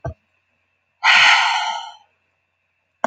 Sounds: Sigh